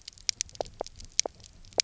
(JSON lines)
{"label": "biophony, knock croak", "recorder": "SoundTrap 300"}